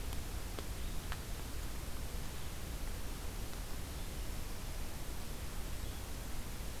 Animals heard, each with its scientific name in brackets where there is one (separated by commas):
Red-eyed Vireo (Vireo olivaceus)